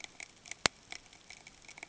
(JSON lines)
{"label": "ambient", "recorder": "HydroMoth"}